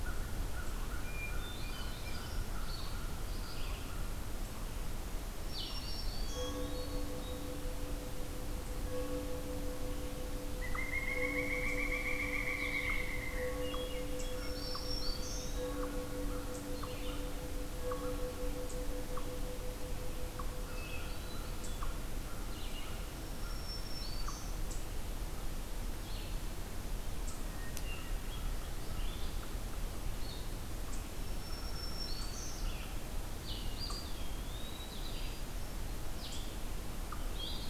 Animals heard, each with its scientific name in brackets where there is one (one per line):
Eastern Wood-Pewee (Contopus virens)
Red-eyed Vireo (Vireo olivaceus)
Hermit Thrush (Catharus guttatus)
Black-throated Green Warbler (Setophaga virens)
Pileated Woodpecker (Dryocopus pileatus)
American Crow (Corvus brachyrhynchos)